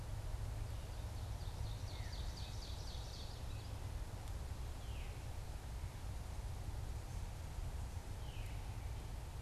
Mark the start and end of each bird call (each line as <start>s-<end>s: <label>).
0.0s-9.4s: Veery (Catharus fuscescens)
0.8s-3.4s: Ovenbird (Seiurus aurocapilla)